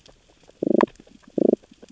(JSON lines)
{"label": "biophony, damselfish", "recorder": "SoundTrap 600 or HydroMoth"}